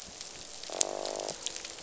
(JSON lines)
{"label": "biophony, croak", "recorder": "SoundTrap 500"}